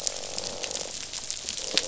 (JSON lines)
{"label": "biophony, croak", "recorder": "SoundTrap 500"}